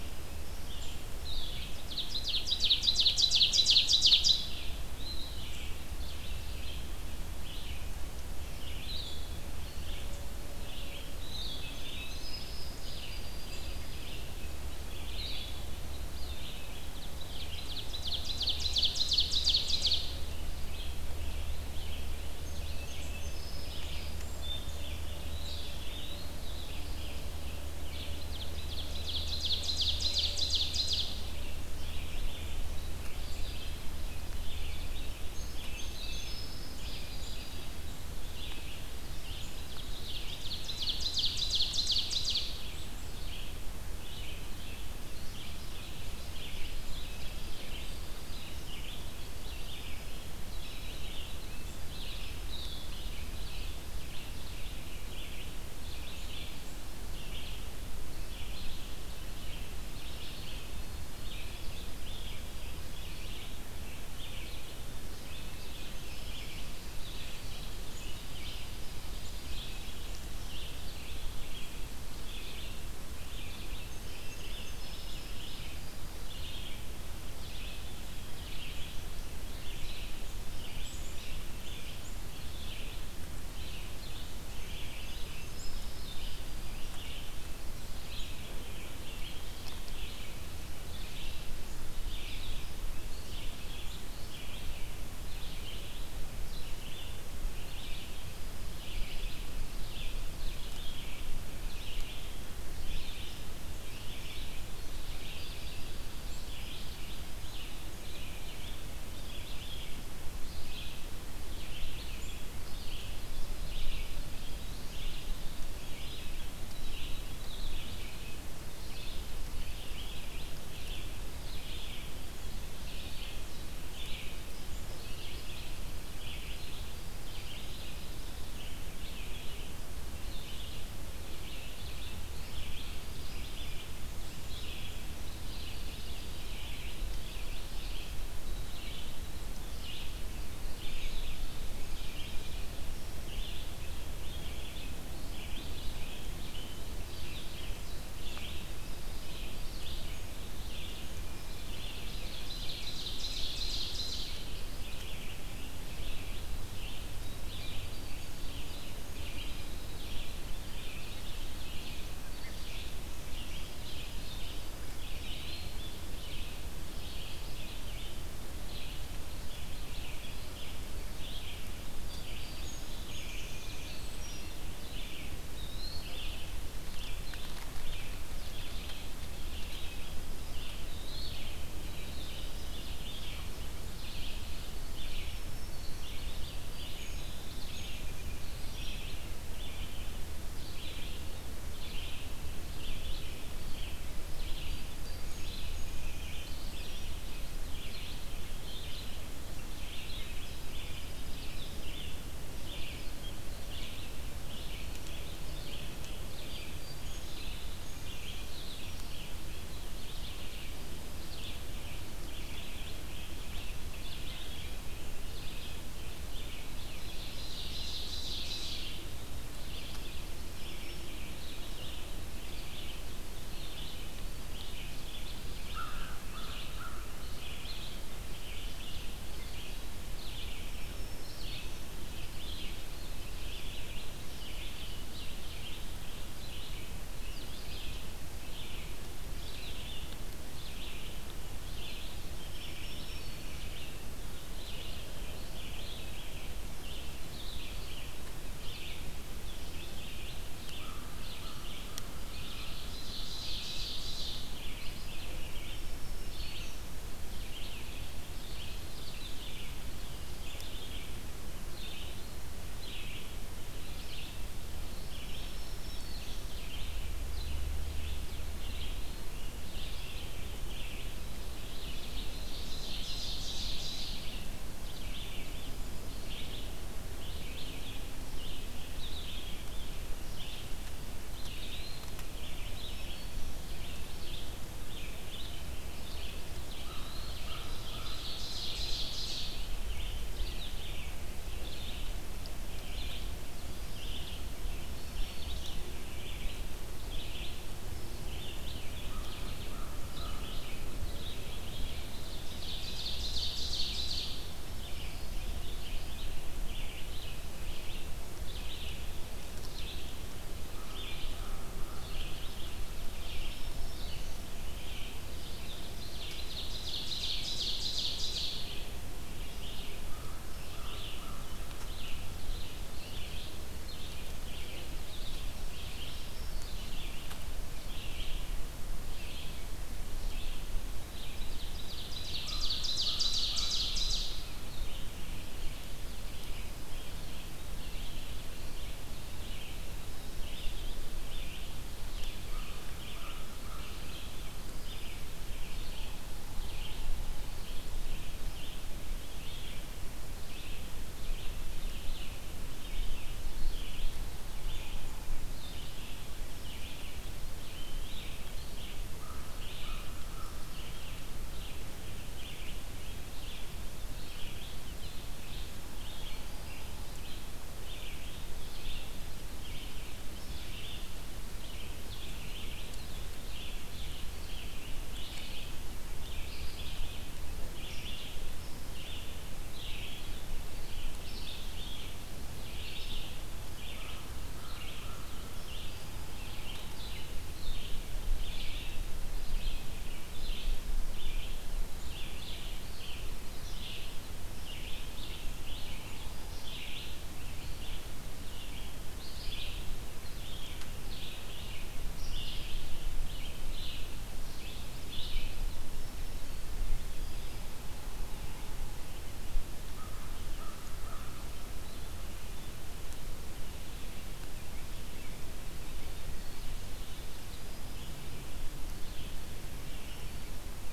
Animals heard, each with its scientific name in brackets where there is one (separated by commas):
Ovenbird (Seiurus aurocapilla), Winter Wren (Troglodytes hiemalis), Song Sparrow (Melospiza melodia), Blue-headed Vireo (Vireo solitarius), Eastern Wood-Pewee (Contopus virens), Red-eyed Vireo (Vireo olivaceus), Black-throated Green Warbler (Setophaga virens), American Crow (Corvus brachyrhynchos)